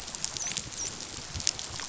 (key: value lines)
label: biophony, dolphin
recorder: SoundTrap 500